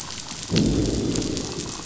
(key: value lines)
label: biophony, growl
recorder: SoundTrap 500